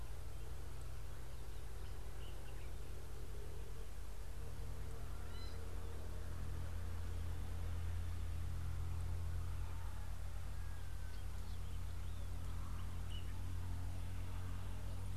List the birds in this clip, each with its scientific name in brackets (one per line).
Gray-backed Camaroptera (Camaroptera brevicaudata)